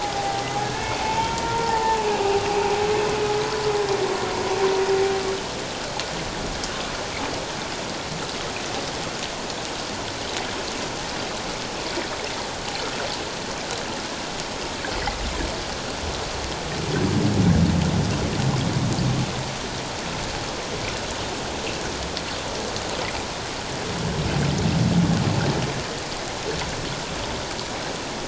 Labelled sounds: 0.0	2.0	humpback whale, 0.78 to 2.3 kHz

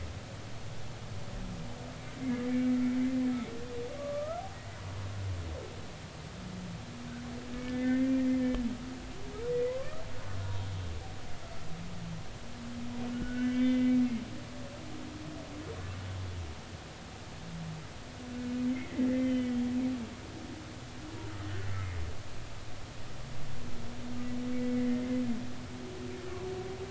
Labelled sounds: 2.2	2.5	humpback whale, 1.9 to 2.2 kHz
4.0	4.4	humpback whale, 1.1 to 1.4 kHz
7.6	8.2	humpback whale, 1.7 to 2.1 kHz
9.5	10.0	humpback whale, 0.96 to 2.1 kHz
13.1	13.9	humpback whale, 1.4 to 3.4 kHz
18.7	19.6	humpback whale, 1.7 to 3.2 kHz
21.6	22.0	humpback whale, 1.9 to 2.2 kHz
24.8	25.1	humpback whale, 1.9 to 2.1 kHz

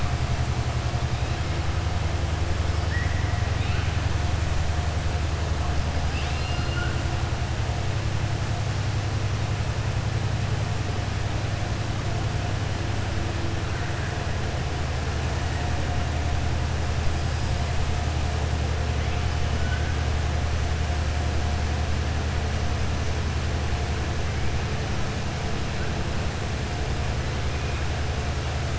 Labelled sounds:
6.0	7.0	killer whale, southern resident, 1.4 to 5.0 kHz

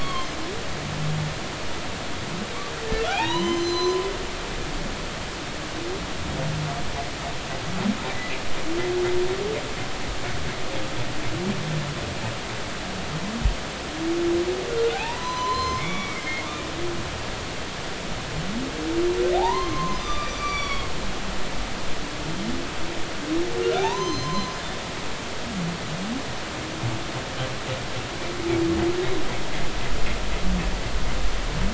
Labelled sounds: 0.0	0.3	humpback whale, 0.99 to 3.3 kHz
3.1	4.0	humpback whale, 0.80 to 6.2 kHz
14.9	16.5	humpback whale, 0.80 to 6.1 kHz
19.4	20.9	humpback whale, 0.80 to 5.9 kHz
23.8	24.5	humpback whale, 0.80 to 6.3 kHz

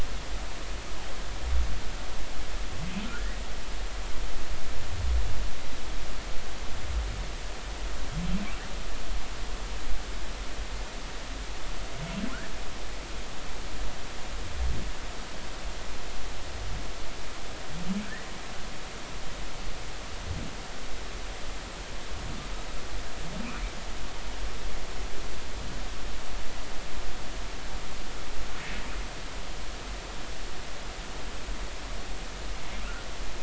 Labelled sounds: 3.0	3.4	humpback whale, 1.3 to 2.0 kHz
28.6	28.9	humpback whale, 2.6 to 2.7 kHz

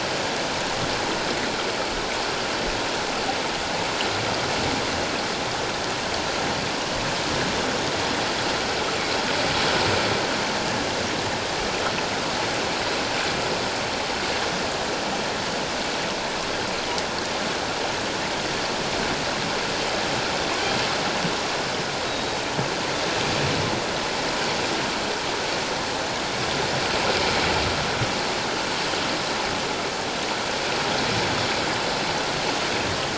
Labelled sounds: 22.1	22.5	killer whale, 3.7 to 3.9 kHz

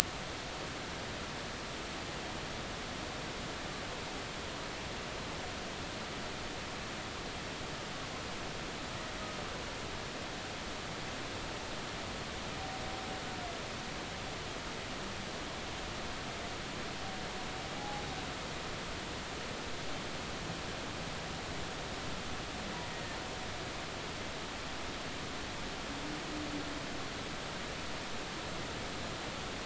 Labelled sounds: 17.7	18.0	Pacific white-sided dolphin, 0.80 to 0.90 kHz
22.9	23.2	Pacific white-sided dolphin, 1.8 to 1.9 kHz

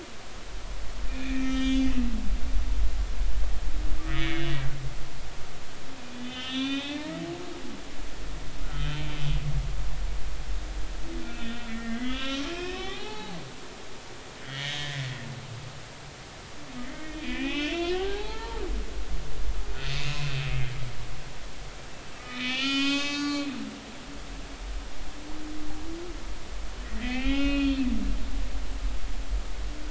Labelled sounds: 1.1	1.9	humpback whale, 1.2 to 6.1 kHz
4.1	4.6	humpback whale, 1.7 to 3.5 kHz
5.9	7.2	humpback whale, 1.2 to 3.8 kHz
8.6	9.0	humpback whale, 1.2 to 3.7 kHz
11.2	13.4	humpback whale, 0.80 to 4.4 kHz
14.4	15.1	humpback whale, 1.7 to 6.2 kHz
16.8	18.6	humpback whale, 0.80 to 4.5 kHz
19.8	21.3	humpback whale, 2.4 to 2.7 kHz
22.1	23.5	humpback whale, 1.1 to 7.2 kHz
26.8	27.9	humpback whale, 1.0 to 4.5 kHz

